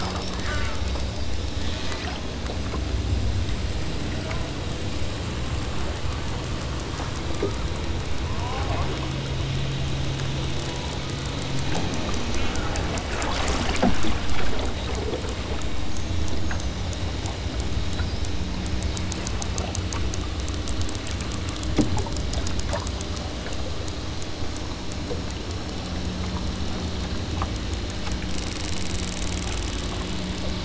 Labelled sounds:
0.4	0.8	killer whale, southern Alaska resident, 0.64 to 5.0 kHz
1.4	2.3	killer whale, southern Alaska resident, 1.2 to 7.0 kHz
8.3	9.0	killer whale, southern Alaska resident, 0.47 to 1.7 kHz
12.3	12.9	killer whale, southern Alaska resident, 0.90 to 3.3 kHz

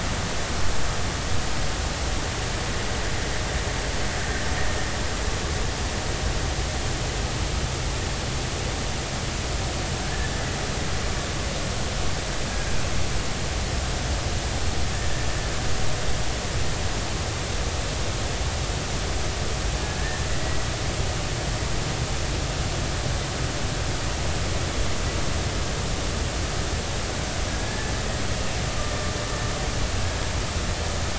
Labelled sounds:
20.0	20.6	killer whale, Bigg's (transient), 1.6 to 2.0 kHz
27.5	27.9	killer whale, Bigg's (transient), 1.6 to 1.9 kHz

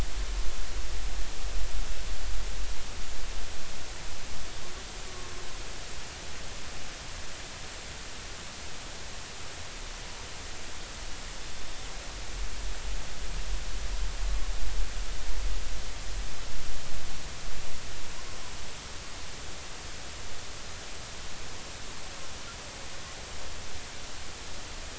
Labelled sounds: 5.1	5.3	killer whale, 1.1 to 1.2 kHz
11.5	11.9	killer whale, 3.55 to 3.65 kHz

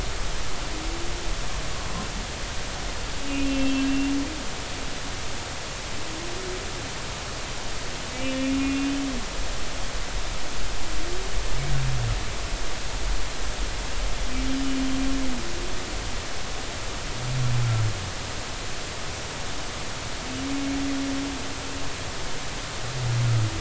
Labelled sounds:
3.5	4.2	humpback whale, 2.6 to 2.8 kHz
8.1	9.0	humpback whale, 2.2 to 2.8 kHz

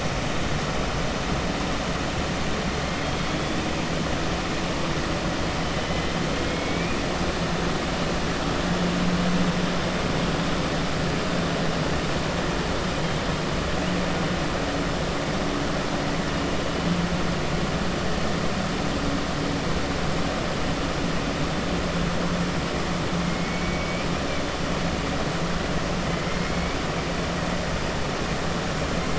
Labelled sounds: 6.4	6.9	killer whale, 2.2 to 3.3 kHz
23.4	24.0	killer whale, 1.9 to 3.0 kHz

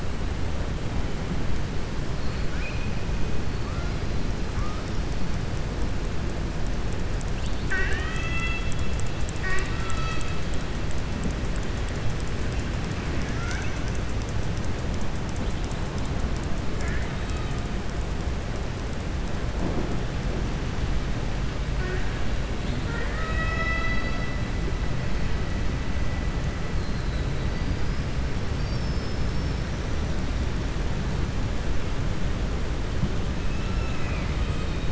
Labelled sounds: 7.3	8.8	killer whale, southern resident, 0.76 to 4.6 kHz
22.8	24.2	killer whale, southern resident, 0.54 to 5.3 kHz
33.4	34.9	killer whale, southern resident, 1.3 to 4.4 kHz

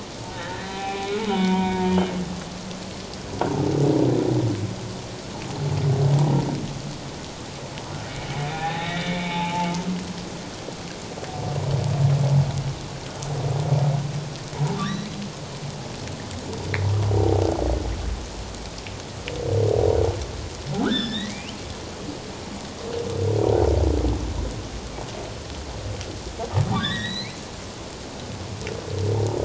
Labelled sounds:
0.3	2.0	humpback whale, 0.78 to 3.1 kHz
8.1	9.7	humpback whale, 0.78 to 3.9 kHz
14.8	15.2	humpback whale, 1.5 to 4.1 kHz
20.8	21.5	humpback whale, 1.2 to 5.3 kHz
26.6	27.4	humpback whale, 1.4 to 4.4 kHz

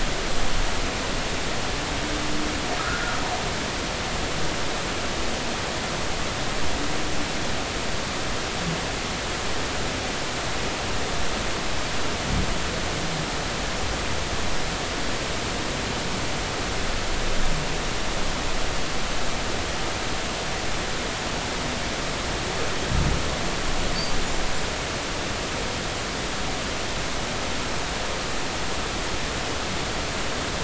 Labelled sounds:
2.8	3.2	humpback whale, 1.2 to 1.5 kHz

